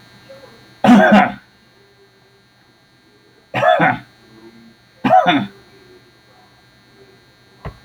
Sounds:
Cough